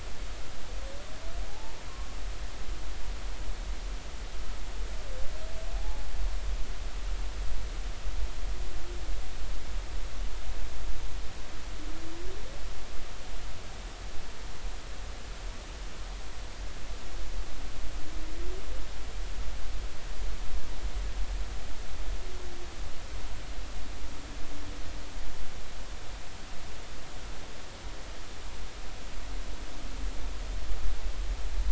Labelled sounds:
1.5	1.8	humpback whale, 0.80 to 0.96 kHz
5.8	6.0	humpback whale, 0.80 to 0.90 kHz

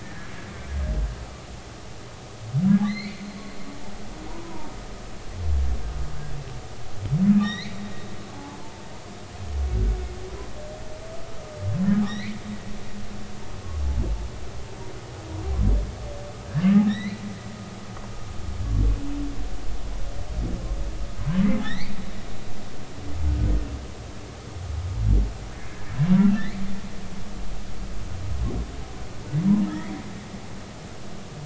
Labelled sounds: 0.0	0.3	humpback whale, 1.5 to 1.9 kHz
2.8	3.2	humpback whale, 1.7 to 4.7 kHz
4.3	4.7	humpback whale, 0.86 to 1.1 kHz
7.4	7.8	humpback whale, 1.8 to 5.8 kHz
8.3	8.6	humpback whale, 0.83 to 0.90 kHz
9.7	10.0	humpback whale, 1.4 to 1.5 kHz
12.0	12.4	humpback whale, 1.7 to 5.9 kHz
16.9	17.2	humpback whale, 1.7 to 4.2 kHz
21.6	21.9	humpback whale, 1.7 to 4.8 kHz
29.7	30.0	humpback whale, 1.6 to 2.4 kHz

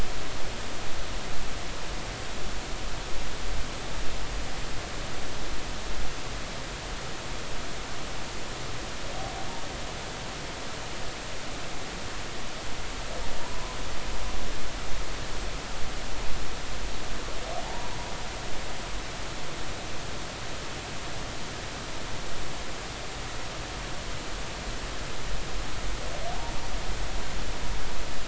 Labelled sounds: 13.4	13.8	humpback whale, 0.90 to 1.2 kHz
17.6	17.9	humpback whale, 0.80 to 1.0 kHz

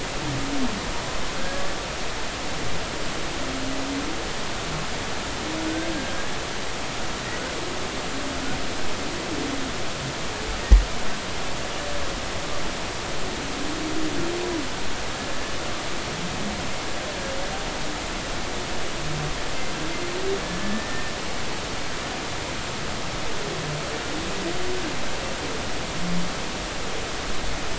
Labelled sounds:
20.4	21.1	humpback whale, 1.7 to 1.9 kHz

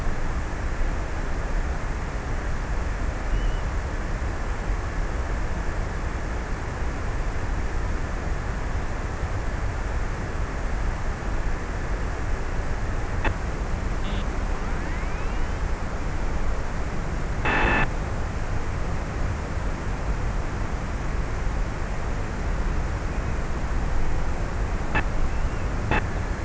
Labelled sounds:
2.7	4.9	killer whale, offshore, 1.7 to 3.3 kHz

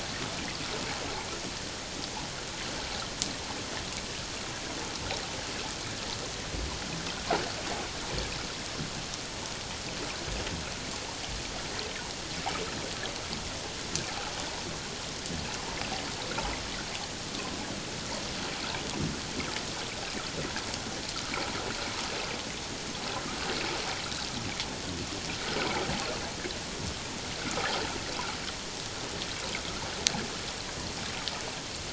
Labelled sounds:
27.4	27.8	water noise, 1.2 to 1.6 kHz

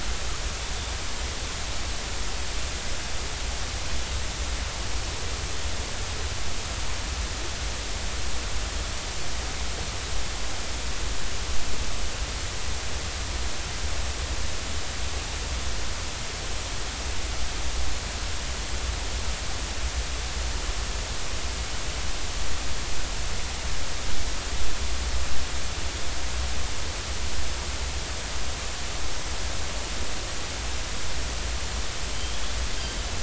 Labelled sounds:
32.1	32.5	Pacific white-sided dolphin, 3.0 to 3.6 kHz

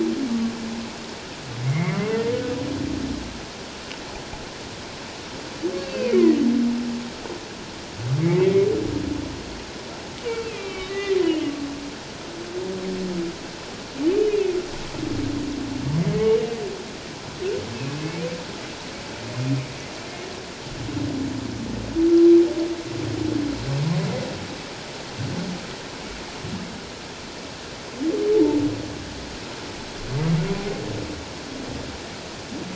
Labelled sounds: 0.3	0.5	humpback whale, 1.1 to 1.2 kHz
1.6	2.0	humpback whale, 1.9 to 2.3 kHz
5.8	6.4	humpback whale, 1.8 to 2.8 kHz
8.2	8.7	humpback whale, 1.9 to 2.4 kHz
10.4	11.2	humpback whale, 1.1 to 3.1 kHz
14.2	14.6	humpback whale, 2.4 to 3.0 kHz
16.2	16.6	humpback whale, 2.8 to 2.9 kHz
17.7	18.0	humpback whale, 2.5 to 2.7 kHz

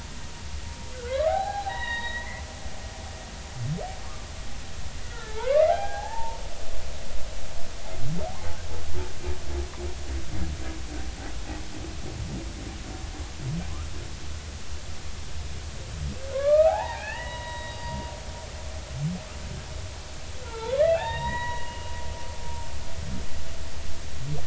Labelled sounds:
0.9	2.4	humpback whale, 0.80 to 4.1 kHz
5.0	6.4	humpback whale, 0.80 to 2.0 kHz
16.3	18.0	humpback whale, 0.80 to 4.8 kHz
20.4	21.9	humpback whale, 0.80 to 3.9 kHz

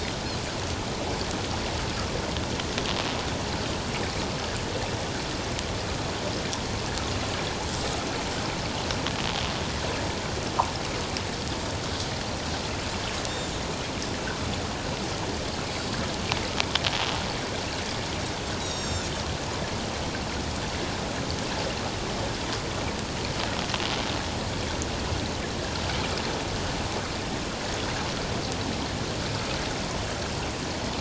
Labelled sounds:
18.6	19.1	Pacific white-sided dolphin, 3.5 to 7.7 kHz

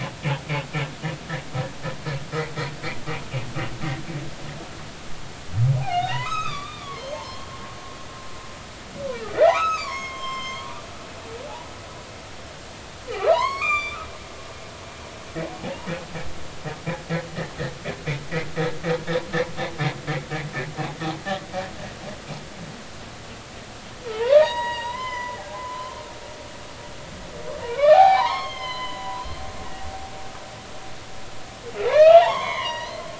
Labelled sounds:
5.8	7.5	humpback whale, 0.80 to 6.6 kHz
9.1	10.7	humpback whale, 0.80 to 7.5 kHz
13.1	14.0	humpback whale, 0.80 to 7.8 kHz
15.6	15.9	humpback whale, 0.80 to 1.0 kHz
24.1	26.0	humpback whale, 0.80 to 6.8 kHz
27.6	29.2	humpback whale, 0.80 to 7.0 kHz
31.8	33.0	humpback whale, 0.80 to 6.0 kHz

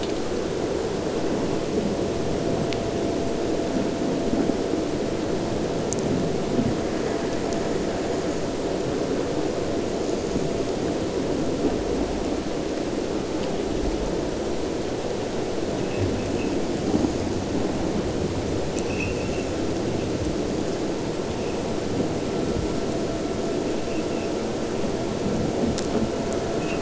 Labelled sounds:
18.7	19.5	abiotic sound, 2.2 to 3.0 kHz

